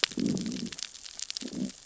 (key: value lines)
label: biophony, growl
recorder: SoundTrap 600 or HydroMoth